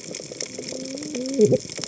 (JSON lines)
{"label": "biophony, cascading saw", "recorder": "HydroMoth"}